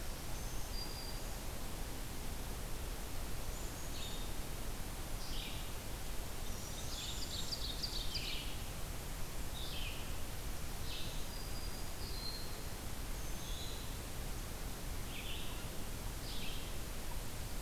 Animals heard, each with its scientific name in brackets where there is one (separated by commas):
Black-throated Green Warbler (Setophaga virens), Black-and-white Warbler (Mniotilta varia), unidentified call, Red-eyed Vireo (Vireo olivaceus), Ovenbird (Seiurus aurocapilla)